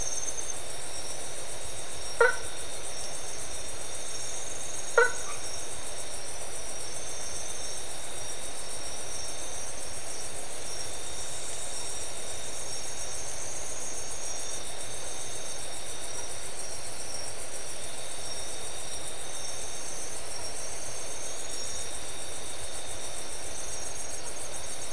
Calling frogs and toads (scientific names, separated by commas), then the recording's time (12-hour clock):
Boana faber, Boana albomarginata
2:30am